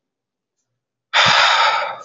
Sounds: Sigh